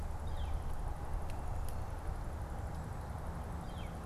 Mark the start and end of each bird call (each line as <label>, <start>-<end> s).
Northern Flicker (Colaptes auratus), 0.1-0.6 s
Northern Flicker (Colaptes auratus), 3.5-4.0 s